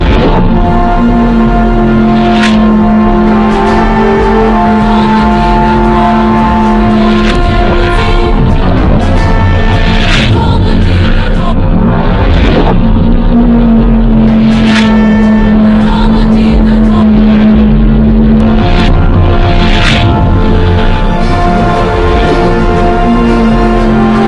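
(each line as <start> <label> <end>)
0.0 A band is playing parade music. 11.4
0.0 Heavily distorted sounds create a spooky and creepy atmosphere. 24.3
4.9 A woman is singing with a distorted voice. 8.4
10.2 A woman is singing with a distorted voice. 11.4
14.2 A band is playing parade music. 17.0
15.7 A woman is singing with a distorted voice. 17.0
18.5 A band is playing parade music. 24.3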